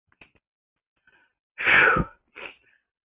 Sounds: Sneeze